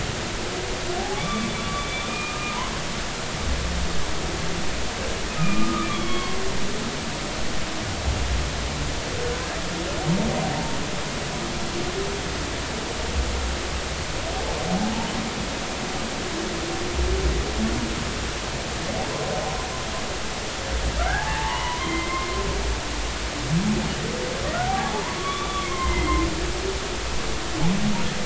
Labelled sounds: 1.0	2.6	humpback whale, 0.80 to 3.6 kHz
5.4	6.4	humpback whale, 0.99 to 3.4 kHz
10.5	10.8	humpback whale, 0.86 to 0.96 kHz
21.0	22.3	humpback whale, 0.80 to 3.2 kHz
24.6	26.2	humpback whale, 0.80 to 3.6 kHz
26.5	26.8	humpback whale, 3.2 to 3.5 kHz

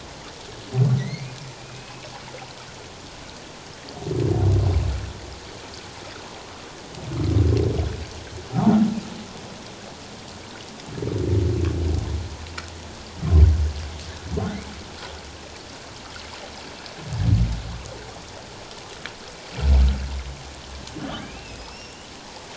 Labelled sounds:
1.0	2.1	humpback whale, 1.9 to 2.8 kHz
21.2	22.1	humpback whale, 2.0 to 5.6 kHz

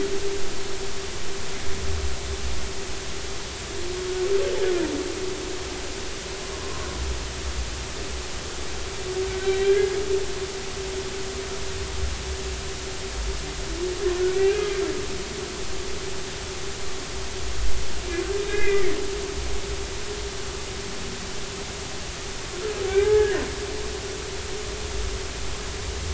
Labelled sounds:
6.6	6.9	humpback whale, 0.99 to 1.2 kHz
9.4	10.0	humpback whale, 1.5 to 4.0 kHz
14.3	14.7	humpback whale, 2.3 to 2.9 kHz
18.4	18.8	humpback whale, 1.5 to 3.8 kHz
22.9	23.4	humpback whale, 0.80 to 1.8 kHz

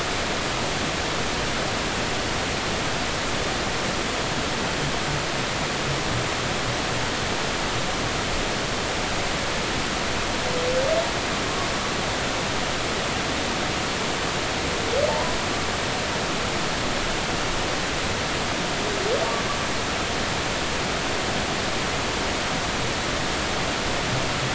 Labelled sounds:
15.1	15.4	humpback whale, 0.83 to 1.0 kHz

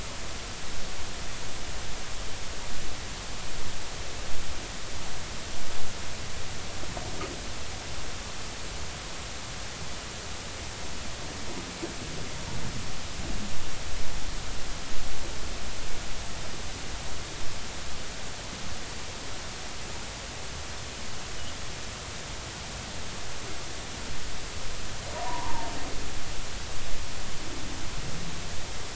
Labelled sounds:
25.2	25.7	humpback whale, 0.86 to 1.1 kHz

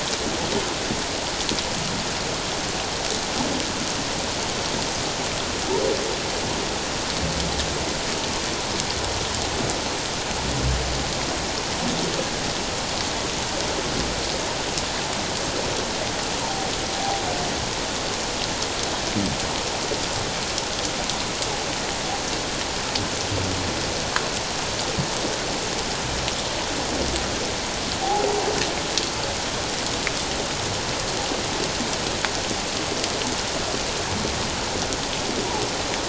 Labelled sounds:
17.0	17.2	humpback whale, 0.78 to 0.88 kHz

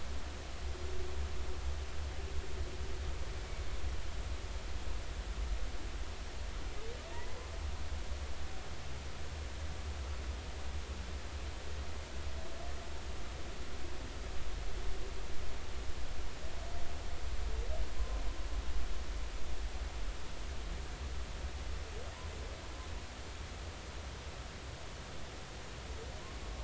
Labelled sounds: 7.1	7.4	humpback whale, 0.90 to 2.0 kHz

